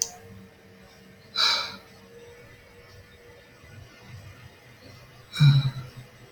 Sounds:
Sigh